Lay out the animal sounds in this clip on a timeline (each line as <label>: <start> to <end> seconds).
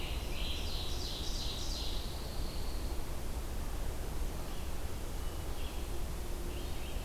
Red-eyed Vireo (Vireo olivaceus): 0.0 to 0.7 seconds
Scarlet Tanager (Piranga olivacea): 0.0 to 0.8 seconds
Ovenbird (Seiurus aurocapilla): 0.4 to 2.1 seconds
Pine Warbler (Setophaga pinus): 2.0 to 2.9 seconds
Red-eyed Vireo (Vireo olivaceus): 5.3 to 7.0 seconds